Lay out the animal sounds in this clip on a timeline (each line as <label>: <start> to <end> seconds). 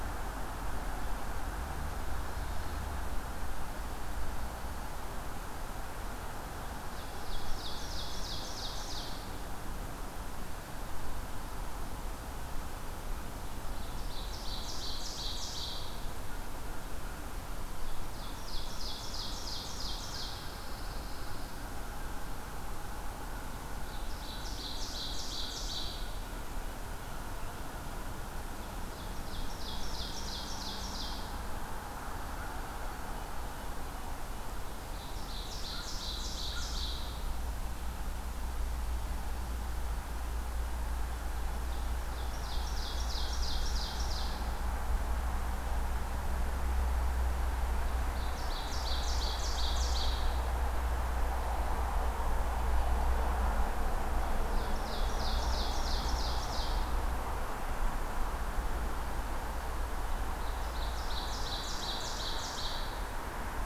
Ovenbird (Seiurus aurocapilla): 7.1 to 9.4 seconds
Ovenbird (Seiurus aurocapilla): 13.5 to 16.1 seconds
Ovenbird (Seiurus aurocapilla): 18.1 to 20.6 seconds
Pine Warbler (Setophaga pinus): 20.3 to 21.6 seconds
Ovenbird (Seiurus aurocapilla): 23.6 to 26.1 seconds
Ovenbird (Seiurus aurocapilla): 28.7 to 31.4 seconds
Ovenbird (Seiurus aurocapilla): 34.7 to 37.3 seconds
Ovenbird (Seiurus aurocapilla): 42.0 to 44.7 seconds
Ovenbird (Seiurus aurocapilla): 48.0 to 50.3 seconds
Ovenbird (Seiurus aurocapilla): 54.4 to 57.1 seconds
Ovenbird (Seiurus aurocapilla): 60.3 to 63.1 seconds